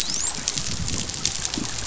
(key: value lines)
label: biophony, dolphin
recorder: SoundTrap 500